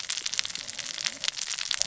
{"label": "biophony, cascading saw", "recorder": "SoundTrap 600 or HydroMoth"}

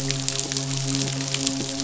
{"label": "biophony, midshipman", "recorder": "SoundTrap 500"}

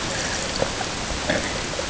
{"label": "ambient", "recorder": "HydroMoth"}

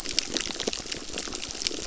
{"label": "biophony, crackle", "recorder": "SoundTrap 600"}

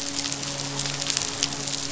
{"label": "biophony, midshipman", "recorder": "SoundTrap 500"}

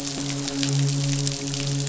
{"label": "biophony, midshipman", "recorder": "SoundTrap 500"}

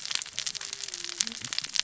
{"label": "biophony, cascading saw", "recorder": "SoundTrap 600 or HydroMoth"}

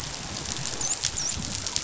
{"label": "biophony, dolphin", "recorder": "SoundTrap 500"}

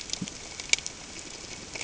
{"label": "ambient", "recorder": "HydroMoth"}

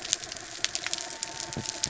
{"label": "biophony", "recorder": "SoundTrap 300"}
{"label": "anthrophony, mechanical", "recorder": "SoundTrap 300"}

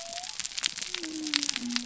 {"label": "biophony", "recorder": "SoundTrap 300"}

